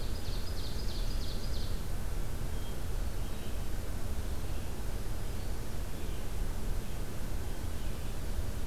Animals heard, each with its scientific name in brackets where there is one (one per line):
Red-eyed Vireo (Vireo olivaceus)
Ovenbird (Seiurus aurocapilla)
Hermit Thrush (Catharus guttatus)